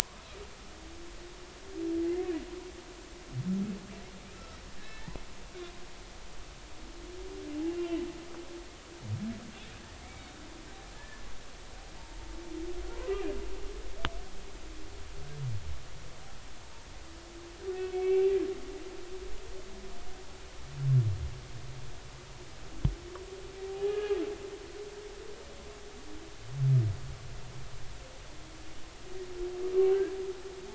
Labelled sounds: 4.3	5.2	humpback whale, 1.2 to 2.0 kHz
7.7	8.0	humpback whale, 2.6 to 2.8 kHz
11.0	11.3	humpback whale, 1.7 to 2.3 kHz
17.7	18.3	humpback whale, 2.2 to 2.8 kHz
23.7	24.2	humpback whale, 0.80 to 3.0 kHz

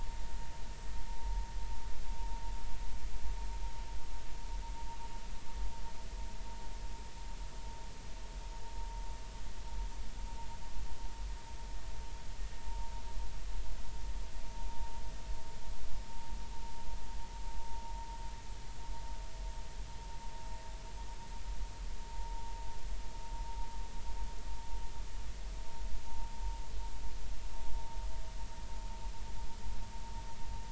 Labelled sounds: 22.1	22.4	vessel noise, 0.86 to 1.1 kHz

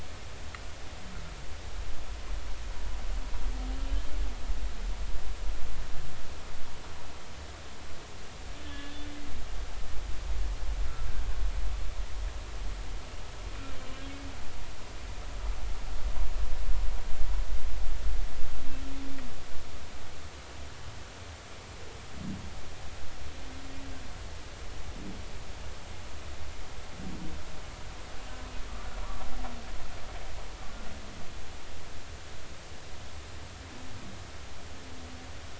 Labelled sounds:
8.6	9.1	humpback whale, 1.7 to 3.6 kHz

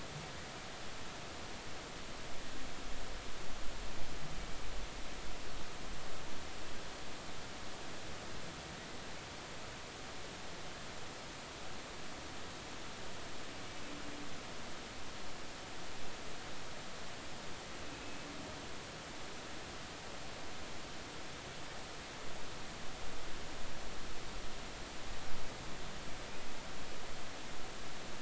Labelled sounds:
17.9	18.3	humpback whale, 2.5 to 2.7 kHz

